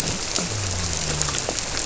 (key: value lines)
label: biophony
recorder: SoundTrap 300